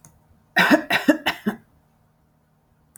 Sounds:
Cough